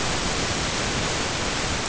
{"label": "ambient", "recorder": "HydroMoth"}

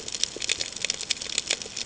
{"label": "ambient", "recorder": "HydroMoth"}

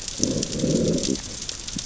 {"label": "biophony, growl", "recorder": "SoundTrap 600 or HydroMoth"}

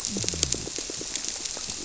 {"label": "biophony", "recorder": "SoundTrap 300"}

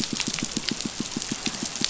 {"label": "biophony, pulse", "recorder": "SoundTrap 500"}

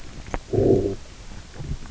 {"label": "biophony, low growl", "recorder": "SoundTrap 300"}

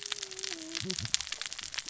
{"label": "biophony, cascading saw", "recorder": "SoundTrap 600 or HydroMoth"}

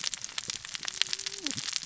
{"label": "biophony, cascading saw", "recorder": "SoundTrap 600 or HydroMoth"}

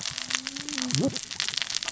{"label": "biophony, cascading saw", "recorder": "SoundTrap 600 or HydroMoth"}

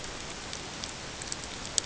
{"label": "ambient", "recorder": "HydroMoth"}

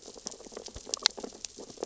{"label": "biophony, sea urchins (Echinidae)", "recorder": "SoundTrap 600 or HydroMoth"}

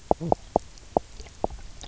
{"label": "biophony, knock croak", "recorder": "SoundTrap 300"}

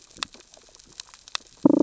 {"label": "biophony, damselfish", "recorder": "SoundTrap 600 or HydroMoth"}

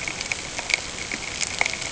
{"label": "ambient", "recorder": "HydroMoth"}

